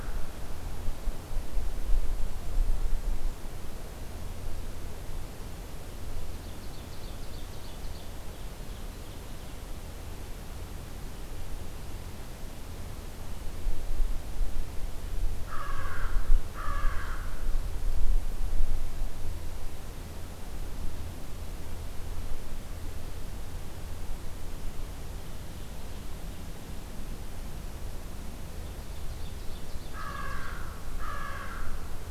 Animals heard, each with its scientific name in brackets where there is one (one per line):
American Crow (Corvus brachyrhynchos)
Ovenbird (Seiurus aurocapilla)